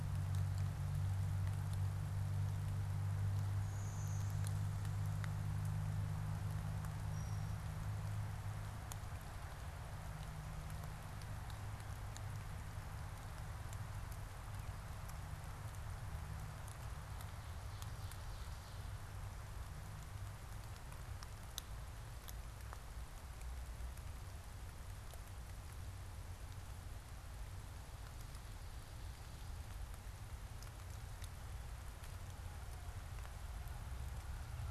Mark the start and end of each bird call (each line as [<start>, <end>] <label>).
[3.56, 5.16] Blue-winged Warbler (Vermivora cyanoptera)
[7.06, 7.46] unidentified bird